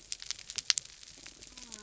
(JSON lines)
{"label": "biophony", "recorder": "SoundTrap 300"}